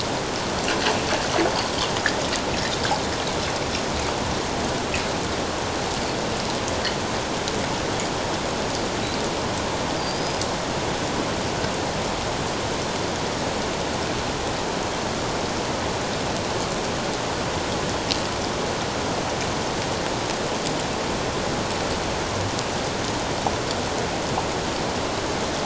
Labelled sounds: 10.0	10.4	killer whale, 4.5 to 5.1 kHz

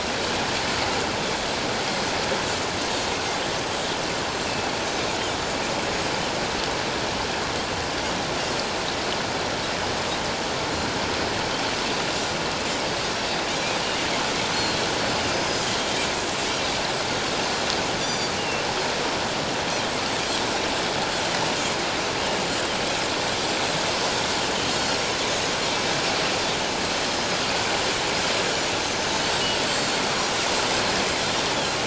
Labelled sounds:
3.6	3.9	Pacific white-sided dolphin, 7.5 to 7.8 kHz
13.8	14.1	Pacific white-sided dolphin, 2.7 to 2.9 kHz
15.3	16.1	Pacific white-sided dolphin, 3.1 to 5.1 kHz
18.0	18.6	Pacific white-sided dolphin, 2.7 to 7.2 kHz
22.2	22.4	Pacific white-sided dolphin, 2.8 to 2.9 kHz
24.7	25.0	Pacific white-sided dolphin, 4.1 to 4.5 kHz
28.8	29.1	Pacific white-sided dolphin, 6.2 to 6.4 kHz
29.7	30.0	Pacific white-sided dolphin, 4.3 to 7.5 kHz

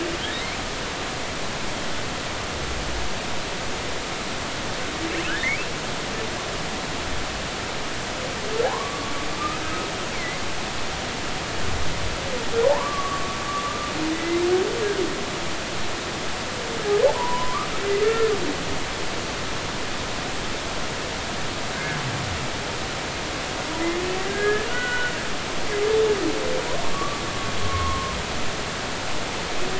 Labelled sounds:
5.3	5.7	humpback whale, 1.3 to 2.8 kHz
8.6	9.1	humpback whale, 0.80 to 1.2 kHz
9.6	9.9	humpback whale, 1.2 to 1.3 kHz
10.1	10.4	humpback whale, 1.9 to 2.3 kHz
12.7	13.4	humpback whale, 0.80 to 1.2 kHz
13.6	14.4	humpback whale, 1.1 to 2.1 kHz
17.1	18.3	humpback whale, 0.80 to 1.9 kHz
21.7	22.0	humpback whale, 1.5 to 1.7 kHz
24.3	25.2	humpback whale, 1.4 to 3.0 kHz
26.9	28.2	humpback whale, 0.99 to 1.2 kHz

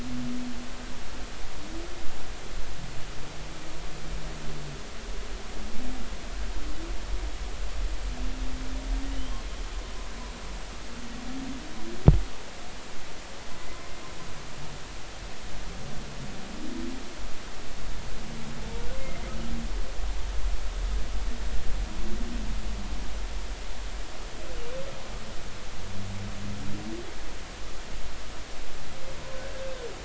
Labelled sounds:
9.2	9.4	humpback whale, 2.9 to 3.3 kHz
19.0	19.2	humpback whale, 2.0 to 2.2 kHz

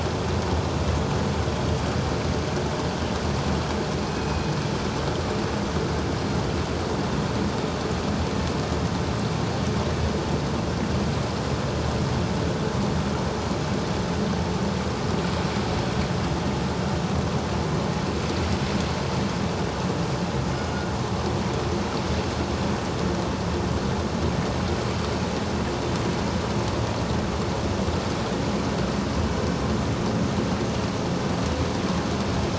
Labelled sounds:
4.0	4.5	killer whale, northern resident, G clan, 2.4 to 5.9 kHz

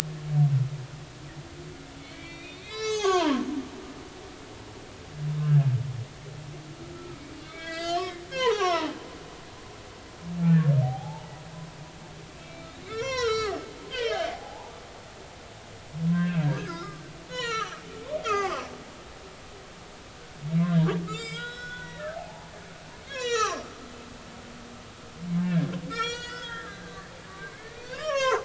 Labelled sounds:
2.0	3.4	humpback whale, 0.80 to 7.5 kHz
5.4	5.6	humpback whale, 1.5 to 1.7 kHz
6.9	8.9	humpback whale, 0.80 to 7.6 kHz
10.5	11.2	humpback whale, 0.80 to 1.9 kHz
12.4	13.6	humpback whale, 0.90 to 7.0 kHz
13.9	14.8	humpback whale, 0.80 to 3.3 kHz
16.1	17.8	humpback whale, 0.90 to 7.2 kHz
18.2	18.7	humpback whale, 0.96 to 6.5 kHz
20.7	22.5	humpback whale, 0.80 to 7.5 kHz
23.1	23.7	humpback whale, 0.99 to 7.4 kHz
25.4	28.4	humpback whale, 0.80 to 6.8 kHz

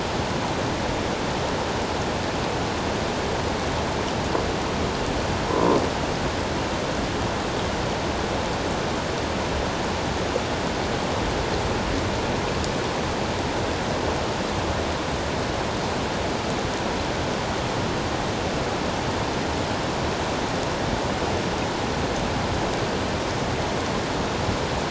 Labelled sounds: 5.5	5.8	croaking sound likely from a nearby submerged object, 0.91 to 1.1 kHz

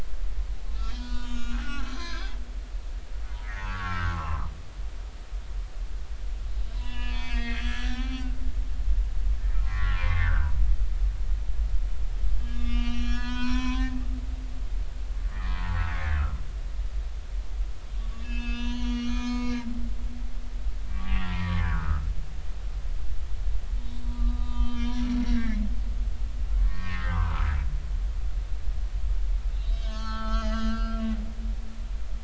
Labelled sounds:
0.8	2.3	humpback whale, 0.93 to 7.0 kHz
3.4	4.5	humpback whale, 0.93 to 2.3 kHz
6.7	8.3	humpback whale, 0.80 to 5.0 kHz
9.6	10.5	humpback whale, 0.93 to 2.2 kHz
12.5	14.0	humpback whale, 0.93 to 6.5 kHz
15.3	15.9	humpback whale, 0.90 to 2.0 kHz
18.1	19.7	humpback whale, 0.93 to 6.7 kHz
20.9	22.1	humpback whale, 0.96 to 2.0 kHz
24.1	25.6	humpback whale, 0.90 to 6.0 kHz
26.6	27.5	humpback whale, 0.83 to 2.7 kHz
29.5	31.0	humpback whale, 0.83 to 6.7 kHz

